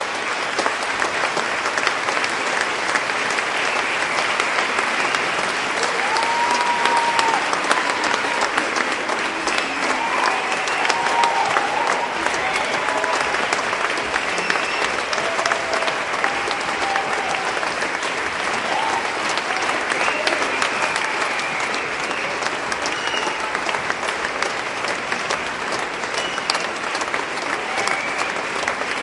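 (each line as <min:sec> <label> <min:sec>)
0:00.0 Continuous and uniform applause from the audience. 0:29.0
0:03.7 Distorted whistling from an audience. 0:05.7
0:05.9 Audience cheers and shouts in the distance. 0:08.8
0:09.3 People whistling. 0:10.3
0:10.3 Audience cheers and shouts joyfully. 0:14.0
0:14.2 Audience whistles cheerfully. 0:15.2
0:15.4 An audience cheers. 0:21.4
0:20.1 Audience whistling rhythmically. 0:23.7
0:26.1 Audience whistles. 0:29.0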